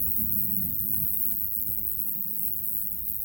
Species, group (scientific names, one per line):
Roeseliana roeselii
Orthoptera